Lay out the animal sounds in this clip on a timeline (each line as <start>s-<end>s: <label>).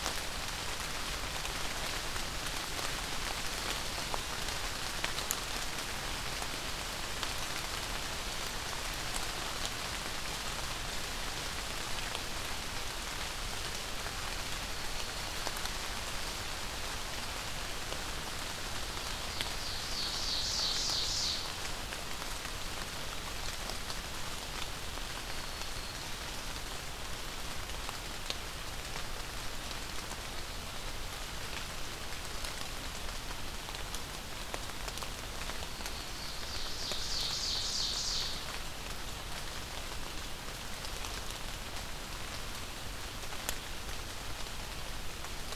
14.5s-15.8s: Black-throated Green Warbler (Setophaga virens)
18.9s-21.6s: Ovenbird (Seiurus aurocapilla)
25.0s-26.4s: Black-throated Green Warbler (Setophaga virens)
35.3s-38.4s: Ovenbird (Seiurus aurocapilla)